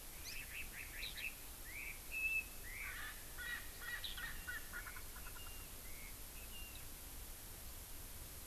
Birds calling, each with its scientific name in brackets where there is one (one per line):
Erckel's Francolin (Pternistis erckelii)